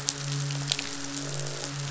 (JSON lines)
{"label": "biophony, midshipman", "recorder": "SoundTrap 500"}
{"label": "biophony, croak", "recorder": "SoundTrap 500"}